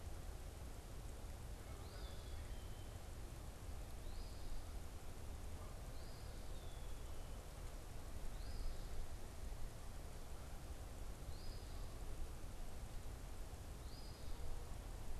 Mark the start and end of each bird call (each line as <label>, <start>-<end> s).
Eastern Phoebe (Sayornis phoebe), 1.7-14.4 s
Black-capped Chickadee (Poecile atricapillus), 2.0-3.1 s
Black-capped Chickadee (Poecile atricapillus), 6.4-7.2 s